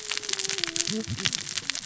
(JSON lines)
{"label": "biophony, cascading saw", "recorder": "SoundTrap 600 or HydroMoth"}